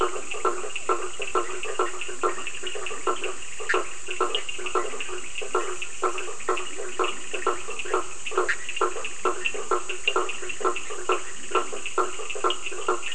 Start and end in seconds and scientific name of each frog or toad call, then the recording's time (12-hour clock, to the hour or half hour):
0.0	1.2	Physalaemus cuvieri
0.0	13.1	Boana faber
0.0	13.1	Leptodactylus latrans
0.0	13.1	Sphaenorhynchus surdus
3.5	4.1	Boana bischoffi
8.3	8.8	Boana bischoffi
10pm